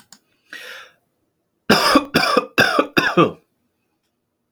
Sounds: Cough